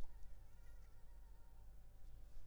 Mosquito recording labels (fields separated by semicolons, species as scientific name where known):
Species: Culex pipiens complex; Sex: female; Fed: unfed; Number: one; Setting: cup